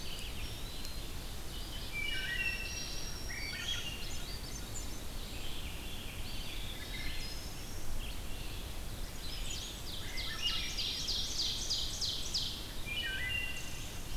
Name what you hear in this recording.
Eastern Wood-Pewee, Ovenbird, Red-eyed Vireo, Wood Thrush, Black-throated Green Warbler, Swainson's Thrush